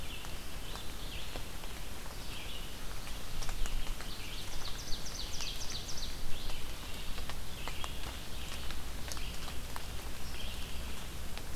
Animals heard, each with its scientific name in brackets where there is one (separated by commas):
Ovenbird (Seiurus aurocapilla), Red-eyed Vireo (Vireo olivaceus)